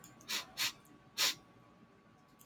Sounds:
Sniff